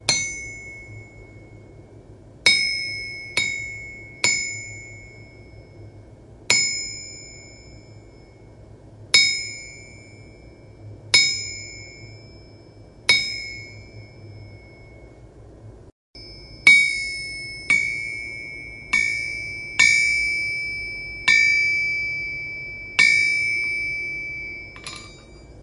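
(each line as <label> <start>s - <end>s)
High-pitched metal clinking. 0.0s - 1.2s
Repeated high-pitched metal clinking sounds. 2.4s - 5.3s
High-pitched metal clinking. 6.5s - 7.8s
High-pitched metal clinking. 9.1s - 15.3s
Repeated high-pitched metal clinking sounds. 16.6s - 25.6s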